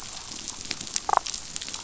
{"label": "biophony, damselfish", "recorder": "SoundTrap 500"}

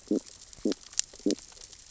{"label": "biophony, stridulation", "recorder": "SoundTrap 600 or HydroMoth"}
{"label": "biophony, sea urchins (Echinidae)", "recorder": "SoundTrap 600 or HydroMoth"}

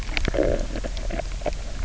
{"label": "biophony, low growl", "recorder": "SoundTrap 300"}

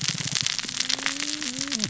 {"label": "biophony, cascading saw", "recorder": "SoundTrap 600 or HydroMoth"}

